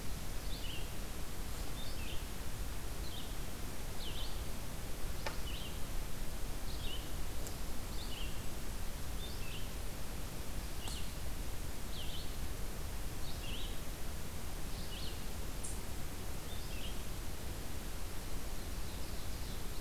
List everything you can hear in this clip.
Red-eyed Vireo, Ovenbird